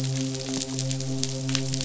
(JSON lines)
{"label": "biophony, midshipman", "recorder": "SoundTrap 500"}